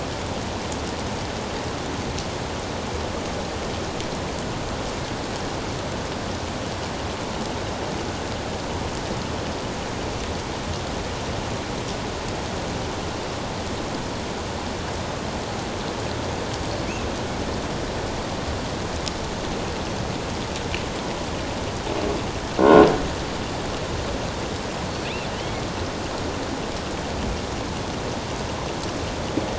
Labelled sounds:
22.6	22.9	croaking sound likely from a nearby submerged object, 1.3 to 1.5 kHz
25.0	25.6	killer whale, offshore, 1.9 to 3.4 kHz

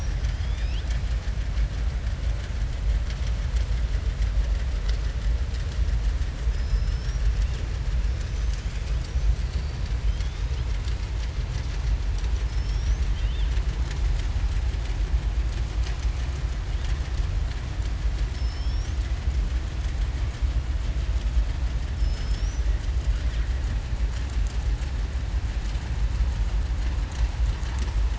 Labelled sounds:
6.5	7.2	killer whale, southern resident, 5.1 to 5.9 kHz

